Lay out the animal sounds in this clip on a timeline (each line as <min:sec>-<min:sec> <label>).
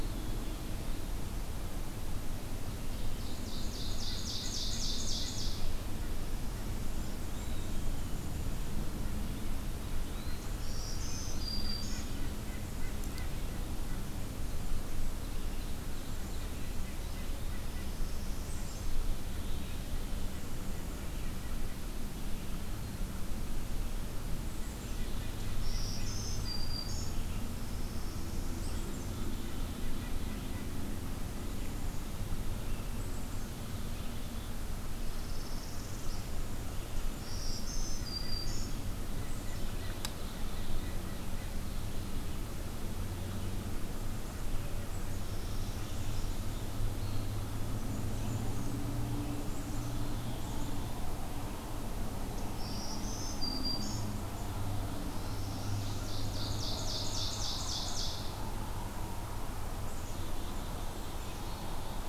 0:02.4-0:05.9 Ovenbird (Seiurus aurocapilla)
0:07.2-0:08.3 Eastern Wood-Pewee (Contopus virens)
0:10.0-0:10.6 Eastern Wood-Pewee (Contopus virens)
0:10.5-0:12.3 Black-throated Green Warbler (Setophaga virens)
0:10.7-0:14.1 White-breasted Nuthatch (Sitta carolinensis)
0:16.3-0:20.2 White-breasted Nuthatch (Sitta carolinensis)
0:17.4-0:19.1 Northern Parula (Setophaga americana)
0:24.5-0:25.6 Black-capped Chickadee (Poecile atricapillus)
0:24.5-0:26.7 White-breasted Nuthatch (Sitta carolinensis)
0:25.3-0:27.6 Black-throated Green Warbler (Setophaga virens)
0:27.4-0:28.8 Northern Parula (Setophaga americana)
0:28.6-0:30.3 Black-capped Chickadee (Poecile atricapillus)
0:28.8-0:32.0 White-breasted Nuthatch (Sitta carolinensis)
0:34.9-0:36.4 Northern Parula (Setophaga americana)
0:37.0-0:38.8 Black-throated Green Warbler (Setophaga virens)
0:37.7-0:41.6 White-breasted Nuthatch (Sitta carolinensis)
0:45.2-0:46.4 Northern Parula (Setophaga americana)
0:47.6-0:48.8 Blackburnian Warbler (Setophaga fusca)
0:49.2-0:50.9 Black-capped Chickadee (Poecile atricapillus)
0:52.2-0:54.3 Black-throated Green Warbler (Setophaga virens)
0:54.8-0:56.2 Northern Parula (Setophaga americana)
0:55.8-0:58.5 Ovenbird (Seiurus aurocapilla)
0:59.8-1:01.4 Black-capped Chickadee (Poecile atricapillus)